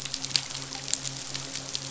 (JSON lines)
{"label": "biophony, midshipman", "recorder": "SoundTrap 500"}